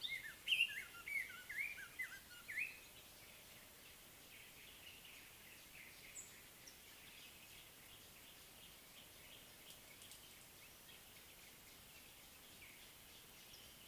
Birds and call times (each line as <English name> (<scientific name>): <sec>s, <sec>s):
Cape Robin-Chat (Cossypha caffra): 1.2s